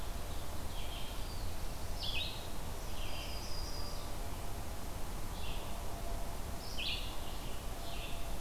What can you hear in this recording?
Red-eyed Vireo, Yellow-rumped Warbler